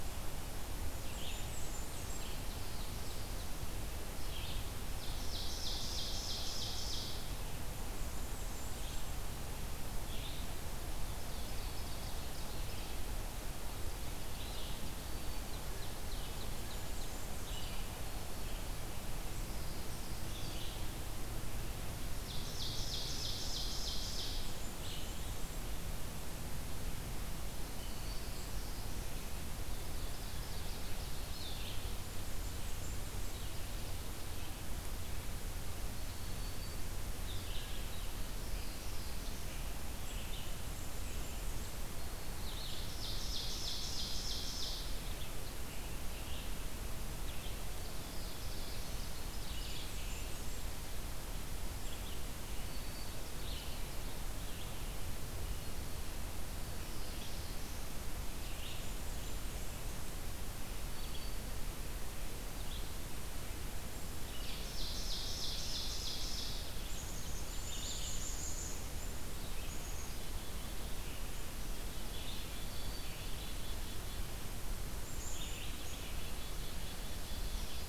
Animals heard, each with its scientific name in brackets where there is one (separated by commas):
Black-capped Chickadee (Poecile atricapillus), Black-throated Green Warbler (Setophaga virens), Blackburnian Warbler (Setophaga fusca), Black-throated Blue Warbler (Setophaga caerulescens), Ovenbird (Seiurus aurocapilla), Red-eyed Vireo (Vireo olivaceus)